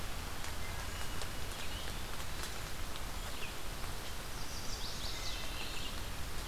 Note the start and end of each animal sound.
[0.00, 6.47] Red-eyed Vireo (Vireo olivaceus)
[0.47, 1.14] Wood Thrush (Hylocichla mustelina)
[2.01, 2.67] Eastern Wood-Pewee (Contopus virens)
[4.27, 5.54] Chestnut-sided Warbler (Setophaga pensylvanica)
[5.10, 5.76] Wood Thrush (Hylocichla mustelina)

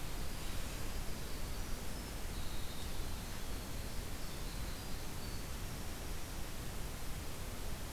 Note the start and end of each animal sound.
[0.00, 6.67] Winter Wren (Troglodytes hiemalis)

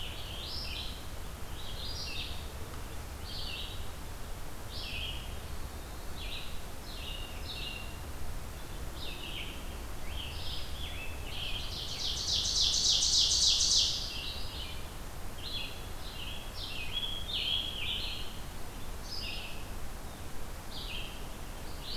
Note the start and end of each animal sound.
[0.00, 0.92] Scarlet Tanager (Piranga olivacea)
[0.00, 21.96] Red-eyed Vireo (Vireo olivaceus)
[5.78, 6.24] Eastern Wood-Pewee (Contopus virens)
[10.09, 12.28] Scarlet Tanager (Piranga olivacea)
[11.30, 14.40] Ovenbird (Seiurus aurocapilla)
[16.49, 18.32] Scarlet Tanager (Piranga olivacea)

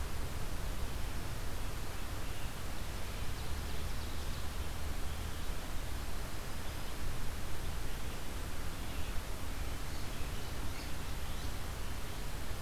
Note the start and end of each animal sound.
[9.61, 11.50] unidentified call

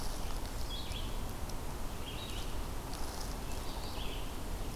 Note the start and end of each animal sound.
[0.00, 4.76] Red-eyed Vireo (Vireo olivaceus)

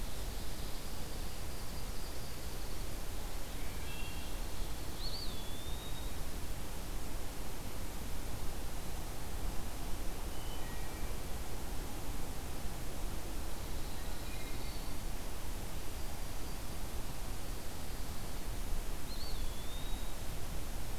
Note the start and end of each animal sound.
[0.00, 0.97] Ovenbird (Seiurus aurocapilla)
[0.12, 2.93] Dark-eyed Junco (Junco hyemalis)
[3.58, 4.35] Wood Thrush (Hylocichla mustelina)
[4.82, 6.34] Eastern Wood-Pewee (Contopus virens)
[10.22, 11.45] Wood Thrush (Hylocichla mustelina)
[13.88, 14.80] Wood Thrush (Hylocichla mustelina)
[18.77, 20.59] Eastern Wood-Pewee (Contopus virens)

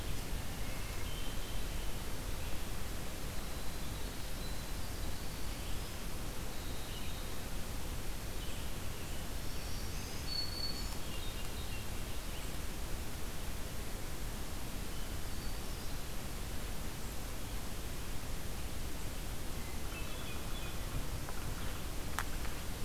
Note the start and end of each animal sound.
[0.66, 1.84] Hermit Thrush (Catharus guttatus)
[3.68, 7.58] Winter Wren (Troglodytes hiemalis)
[5.22, 8.69] Red-eyed Vireo (Vireo olivaceus)
[9.05, 11.43] Black-throated Green Warbler (Setophaga virens)
[10.84, 12.04] Hermit Thrush (Catharus guttatus)
[14.77, 16.18] Hermit Thrush (Catharus guttatus)
[19.27, 21.16] Hermit Thrush (Catharus guttatus)

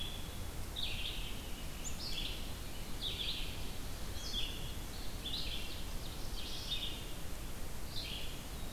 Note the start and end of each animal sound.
[0.00, 8.41] Red-eyed Vireo (Vireo olivaceus)
[4.72, 6.62] Ovenbird (Seiurus aurocapilla)

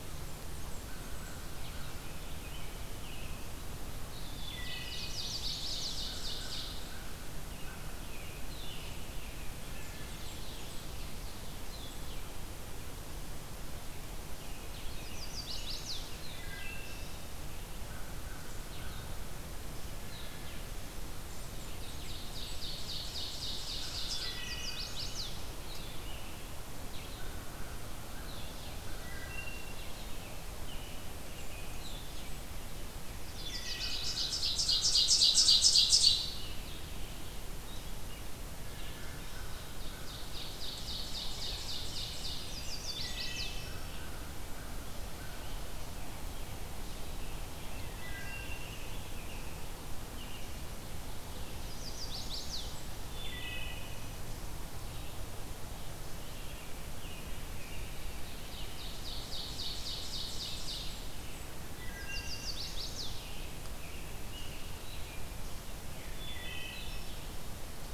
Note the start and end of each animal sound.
[0.00, 19.24] Blue-headed Vireo (Vireo solitarius)
[0.01, 1.60] Blackburnian Warbler (Setophaga fusca)
[0.81, 2.44] American Crow (Corvus brachyrhynchos)
[1.66, 3.52] American Robin (Turdus migratorius)
[4.12, 6.80] Ovenbird (Seiurus aurocapilla)
[4.22, 5.27] Wood Thrush (Hylocichla mustelina)
[5.65, 8.62] American Crow (Corvus brachyrhynchos)
[7.34, 10.41] American Robin (Turdus migratorius)
[9.37, 11.00] Blackburnian Warbler (Setophaga fusca)
[9.88, 11.63] Ovenbird (Seiurus aurocapilla)
[14.29, 16.30] American Robin (Turdus migratorius)
[14.79, 16.21] Chestnut-sided Warbler (Setophaga pensylvanica)
[16.26, 17.39] Wood Thrush (Hylocichla mustelina)
[17.15, 19.52] American Crow (Corvus brachyrhynchos)
[20.02, 67.94] Blue-headed Vireo (Vireo solitarius)
[21.02, 22.73] Blackburnian Warbler (Setophaga fusca)
[21.71, 24.47] Ovenbird (Seiurus aurocapilla)
[24.02, 24.93] Wood Thrush (Hylocichla mustelina)
[24.13, 25.42] Chestnut-sided Warbler (Setophaga pensylvanica)
[27.05, 29.21] American Crow (Corvus brachyrhynchos)
[28.25, 29.80] Ovenbird (Seiurus aurocapilla)
[28.69, 29.98] Wood Thrush (Hylocichla mustelina)
[30.52, 32.00] American Robin (Turdus migratorius)
[31.14, 32.62] Blackburnian Warbler (Setophaga fusca)
[33.23, 34.06] Chestnut-sided Warbler (Setophaga pensylvanica)
[33.23, 34.19] Wood Thrush (Hylocichla mustelina)
[33.62, 36.37] Ovenbird (Seiurus aurocapilla)
[38.88, 40.33] American Crow (Corvus brachyrhynchos)
[39.41, 42.68] Ovenbird (Seiurus aurocapilla)
[41.95, 43.26] Blackburnian Warbler (Setophaga fusca)
[42.31, 43.70] Chestnut-sided Warbler (Setophaga pensylvanica)
[42.46, 43.79] Wood Thrush (Hylocichla mustelina)
[43.56, 45.62] American Crow (Corvus brachyrhynchos)
[47.79, 48.63] Wood Thrush (Hylocichla mustelina)
[48.53, 50.61] American Robin (Turdus migratorius)
[51.44, 52.88] Chestnut-sided Warbler (Setophaga pensylvanica)
[51.99, 52.91] Blackburnian Warbler (Setophaga fusca)
[53.07, 54.08] Wood Thrush (Hylocichla mustelina)
[56.01, 58.88] American Robin (Turdus migratorius)
[58.29, 61.02] Ovenbird (Seiurus aurocapilla)
[60.16, 61.64] Blackburnian Warbler (Setophaga fusca)
[61.75, 62.56] Wood Thrush (Hylocichla mustelina)
[61.81, 63.12] Chestnut-sided Warbler (Setophaga pensylvanica)
[63.12, 65.31] American Robin (Turdus migratorius)
[66.15, 67.17] Wood Thrush (Hylocichla mustelina)

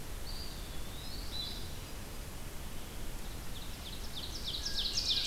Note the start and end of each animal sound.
[0.00, 5.27] Red-eyed Vireo (Vireo olivaceus)
[0.14, 1.46] Eastern Wood-Pewee (Contopus virens)
[0.97, 2.34] Hermit Thrush (Catharus guttatus)
[3.25, 5.27] Ovenbird (Seiurus aurocapilla)

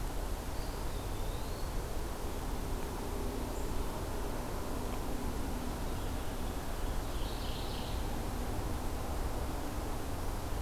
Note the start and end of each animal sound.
[0.37, 2.12] Eastern Wood-Pewee (Contopus virens)
[6.74, 8.22] Mourning Warbler (Geothlypis philadelphia)

